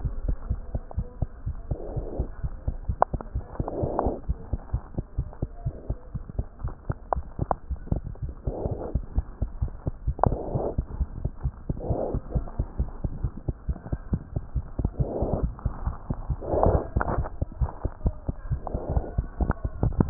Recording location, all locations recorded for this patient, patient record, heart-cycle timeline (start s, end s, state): aortic valve (AV)
aortic valve (AV)+pulmonary valve (PV)+tricuspid valve (TV)+mitral valve (MV)
#Age: Infant
#Sex: Female
#Height: 97.0 cm
#Weight: 7.1 kg
#Pregnancy status: False
#Murmur: Absent
#Murmur locations: nan
#Most audible location: nan
#Systolic murmur timing: nan
#Systolic murmur shape: nan
#Systolic murmur grading: nan
#Systolic murmur pitch: nan
#Systolic murmur quality: nan
#Diastolic murmur timing: nan
#Diastolic murmur shape: nan
#Diastolic murmur grading: nan
#Diastolic murmur pitch: nan
#Diastolic murmur quality: nan
#Outcome: Normal
#Campaign: 2015 screening campaign
0.00	4.16	unannotated
4.16	4.27	systole
4.27	4.36	S2
4.36	4.49	diastole
4.49	4.58	S1
4.58	4.72	systole
4.72	4.82	S2
4.82	4.95	diastole
4.95	5.04	S1
5.04	5.18	systole
5.18	5.28	S2
5.28	5.42	diastole
5.42	5.50	S1
5.50	5.63	systole
5.63	5.75	S2
5.75	5.88	diastole
5.88	5.98	S1
5.98	6.13	systole
6.13	6.21	S2
6.21	6.36	diastole
6.36	6.46	S1
6.46	6.64	systole
6.64	6.72	S2
6.72	6.88	diastole
6.88	6.94	S1
6.94	7.16	systole
7.16	7.26	S2
7.26	7.40	diastole
7.40	7.47	S1
7.47	7.68	systole
7.68	7.80	S2
7.80	7.94	diastole
7.94	8.02	S1
8.02	8.21	systole
8.21	8.34	S2
8.34	8.46	diastole
8.46	8.56	S1
8.56	8.68	systole
8.68	8.76	S2
8.76	8.91	diastole
8.91	9.00	S1
9.00	9.15	systole
9.15	9.24	S2
9.24	9.39	diastole
9.39	9.50	S1
9.50	9.61	systole
9.61	9.72	S2
9.72	9.84	diastole
9.84	9.90	S1
9.90	10.04	systole
10.04	10.16	S2
10.16	10.26	diastole
10.26	10.38	S1
10.38	10.54	systole
10.54	10.66	S2
10.66	10.78	diastole
10.78	10.86	S1
10.86	11.00	systole
11.00	11.08	S2
11.08	11.22	diastole
11.22	11.32	S1
11.32	11.44	systole
11.44	11.54	S2
11.54	11.68	diastole
11.68	11.78	S1
11.78	11.88	systole
11.88	12.00	S2
12.00	12.10	diastole
12.10	12.22	S1
12.22	12.33	systole
12.33	12.44	S2
12.44	12.57	diastole
12.57	12.68	S1
12.68	12.78	systole
12.78	12.86	S2
12.86	13.03	diastole
13.03	13.12	S1
13.12	13.22	systole
13.22	13.32	S2
13.32	13.46	diastole
13.46	13.54	S1
13.54	13.66	systole
13.66	13.74	S2
13.74	13.91	diastole
13.91	13.98	S1
13.98	14.11	systole
14.11	14.18	S2
14.18	14.35	diastole
14.35	14.41	S1
14.41	14.54	systole
14.54	14.62	S2
14.62	14.78	diastole
14.78	20.10	unannotated